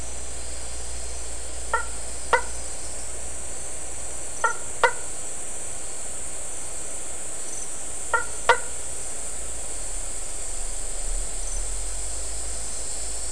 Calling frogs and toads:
Boana faber (Hylidae)
6:30pm

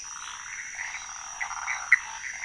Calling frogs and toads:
Leptodactylus podicipinus (Leptodactylidae), Phyllomedusa sauvagii (Hylidae), Pithecopus azureus (Hylidae)
1:45am

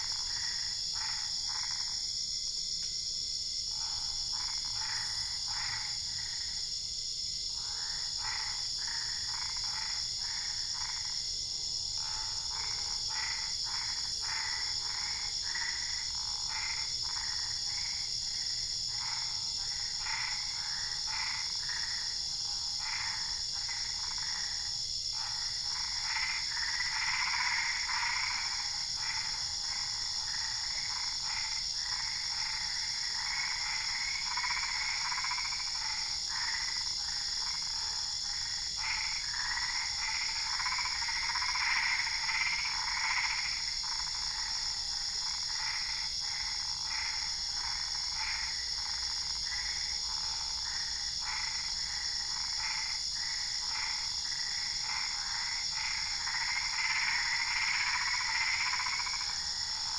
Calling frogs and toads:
Boana albopunctata (Hylidae)
11:45pm

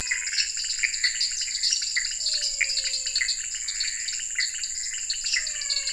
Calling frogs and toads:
Dendropsophus nanus (Hylidae), Leptodactylus podicipinus (Leptodactylidae), Pithecopus azureus (Hylidae), Dendropsophus minutus (Hylidae), Physalaemus albonotatus (Leptodactylidae), Scinax fuscovarius (Hylidae)
9:00pm

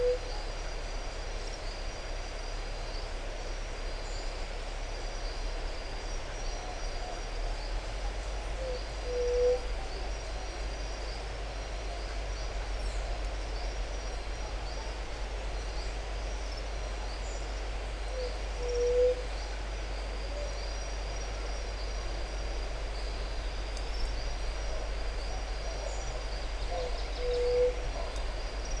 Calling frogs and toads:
Adenomera marmorata (Leptodactylidae)
5:30pm

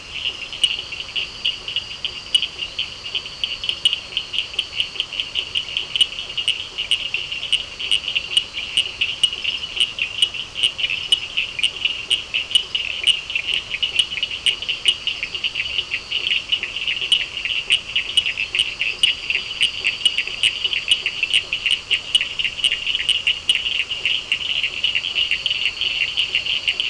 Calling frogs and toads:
Boana faber (Hylidae), Elachistocleis bicolor (Microhylidae), Sphaenorhynchus surdus (Hylidae)
7:30pm

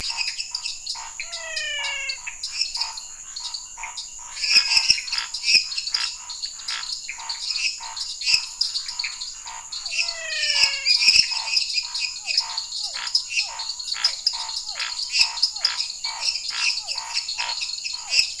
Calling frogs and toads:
Dendropsophus minutus (Hylidae), Dendropsophus nanus (Hylidae), Scinax fuscovarius (Hylidae), Pithecopus azureus (Hylidae), Physalaemus albonotatus (Leptodactylidae), Physalaemus cuvieri (Leptodactylidae)
9:30pm

